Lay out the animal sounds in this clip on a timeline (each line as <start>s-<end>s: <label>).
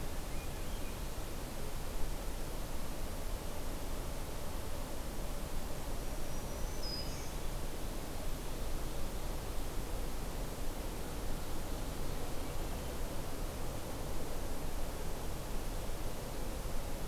0.2s-1.2s: Swainson's Thrush (Catharus ustulatus)
6.0s-7.4s: Black-throated Green Warbler (Setophaga virens)